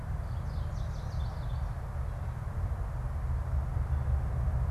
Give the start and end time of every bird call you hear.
0.0s-1.8s: Chestnut-sided Warbler (Setophaga pensylvanica)

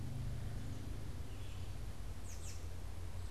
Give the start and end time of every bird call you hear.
0.0s-3.3s: Red-eyed Vireo (Vireo olivaceus)
2.0s-2.8s: American Robin (Turdus migratorius)

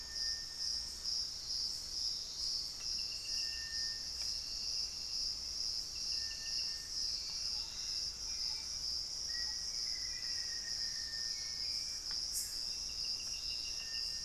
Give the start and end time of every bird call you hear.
0.0s-1.7s: Thrush-like Wren (Campylorhynchus turdinus)
0.0s-14.2s: Little Tinamou (Crypturellus soui)
7.2s-9.7s: Thrush-like Wren (Campylorhynchus turdinus)
9.2s-11.8s: Black-faced Antthrush (Formicarius analis)
11.7s-12.8s: Gray Antbird (Cercomacra cinerascens)

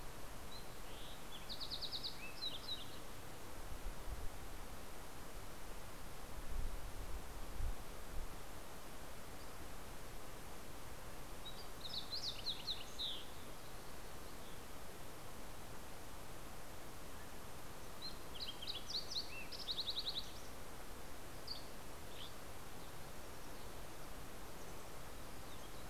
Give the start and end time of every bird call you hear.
0.0s-3.6s: Fox Sparrow (Passerella iliaca)
11.4s-20.7s: Fox Sparrow (Passerella iliaca)
21.0s-23.1s: Dusky Flycatcher (Empidonax oberholseri)

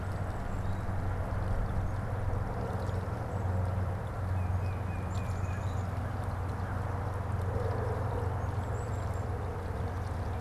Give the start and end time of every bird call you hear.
4.1s-5.8s: Tufted Titmouse (Baeolophus bicolor)
4.7s-5.9s: Black-capped Chickadee (Poecile atricapillus)
4.7s-6.8s: American Crow (Corvus brachyrhynchos)
8.4s-9.6s: Black-capped Chickadee (Poecile atricapillus)

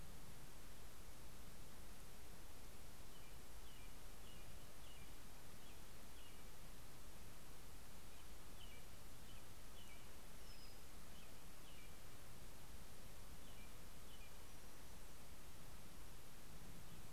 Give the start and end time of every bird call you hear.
2.8s-17.1s: American Robin (Turdus migratorius)
9.8s-11.0s: Brown-headed Cowbird (Molothrus ater)
14.2s-15.1s: Brown-headed Cowbird (Molothrus ater)

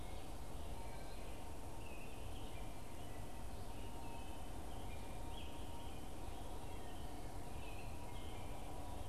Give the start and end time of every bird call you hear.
0.0s-9.1s: American Robin (Turdus migratorius)

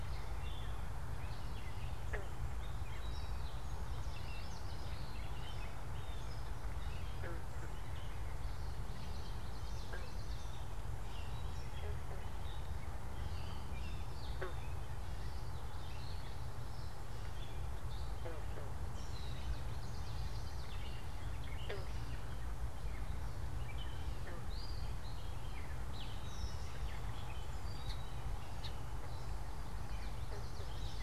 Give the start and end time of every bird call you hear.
0.0s-31.0s: Gray Catbird (Dumetella carolinensis)
3.9s-5.3s: unidentified bird
5.8s-6.3s: Blue Jay (Cyanocitta cristata)
8.8s-10.7s: Common Yellowthroat (Geothlypis trichas)
19.0s-20.9s: Common Yellowthroat (Geothlypis trichas)
29.6s-31.0s: Common Yellowthroat (Geothlypis trichas)

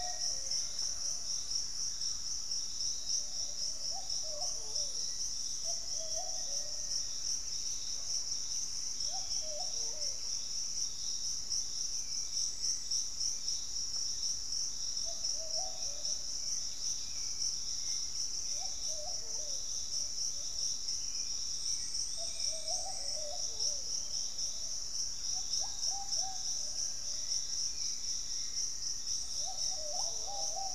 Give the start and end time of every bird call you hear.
0.0s-0.7s: Black-faced Antthrush (Formicarius analis)
0.0s-2.3s: Hauxwell's Thrush (Turdus hauxwelli)
0.0s-2.6s: Thrush-like Wren (Campylorhynchus turdinus)
2.5s-24.4s: Piratic Flycatcher (Legatus leucophaius)
4.9s-7.6s: Black-faced Antthrush (Formicarius analis)
6.9s-9.5s: Pygmy Antwren (Myrmotherula brachyura)
9.0s-9.8s: Black-spotted Bare-eye (Phlegopsis nigromaculata)
9.8s-23.5s: Hauxwell's Thrush (Turdus hauxwelli)
24.8s-27.7s: Fasciated Antshrike (Cymbilaimus lineatus)
25.3s-30.7s: Ruddy Pigeon (Patagioenas subvinacea)
27.5s-30.7s: Black-faced Antthrush (Formicarius analis)

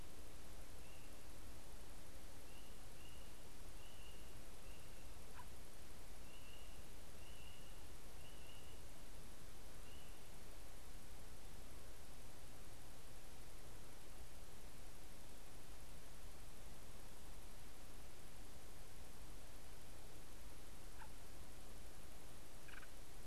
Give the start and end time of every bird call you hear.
5.3s-5.5s: unidentified bird
21.0s-21.1s: unidentified bird
22.6s-22.9s: unidentified bird

